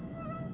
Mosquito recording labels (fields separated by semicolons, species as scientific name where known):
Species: Aedes albopictus; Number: one; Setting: insect culture